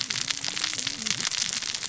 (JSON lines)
{"label": "biophony, cascading saw", "recorder": "SoundTrap 600 or HydroMoth"}